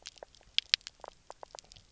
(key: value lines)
label: biophony, knock croak
recorder: SoundTrap 300